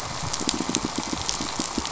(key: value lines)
label: biophony, pulse
recorder: SoundTrap 500

label: anthrophony, boat engine
recorder: SoundTrap 500